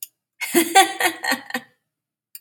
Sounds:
Laughter